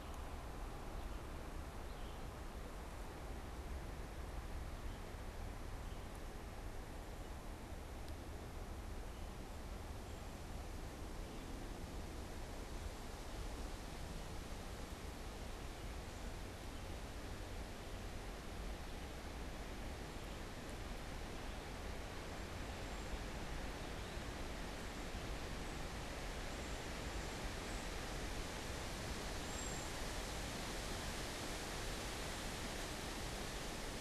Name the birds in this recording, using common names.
Red-eyed Vireo, Cedar Waxwing